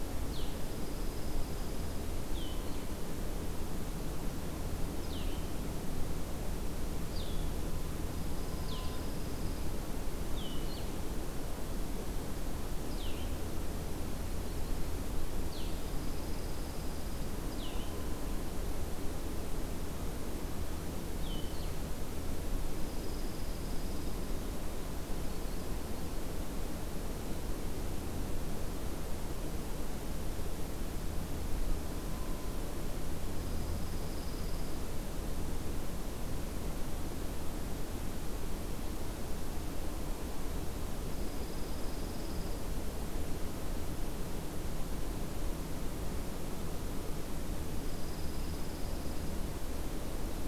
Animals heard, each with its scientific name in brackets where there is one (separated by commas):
Yellow-rumped Warbler (Setophaga coronata), Blue-headed Vireo (Vireo solitarius), Dark-eyed Junco (Junco hyemalis)